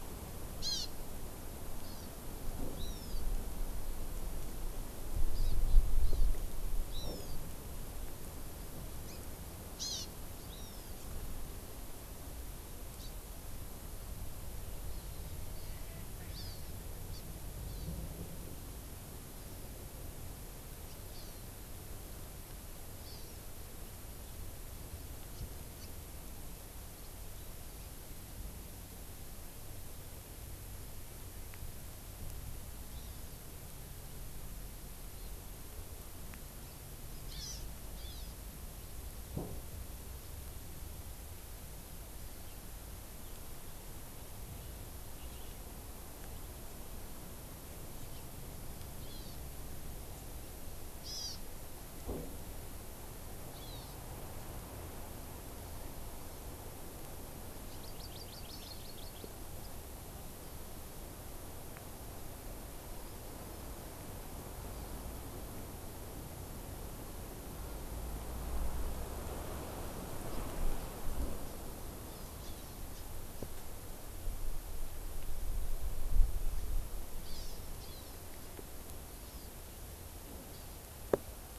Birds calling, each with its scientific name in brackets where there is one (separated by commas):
Hawaii Amakihi (Chlorodrepanis virens), Hawaiian Hawk (Buteo solitarius)